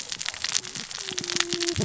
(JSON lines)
{"label": "biophony, cascading saw", "recorder": "SoundTrap 600 or HydroMoth"}